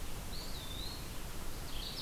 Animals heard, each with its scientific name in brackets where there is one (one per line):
Mourning Warbler (Geothlypis philadelphia)
Eastern Wood-Pewee (Contopus virens)